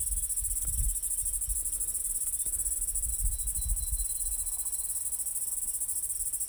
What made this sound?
Diceroprocta vitripennis, a cicada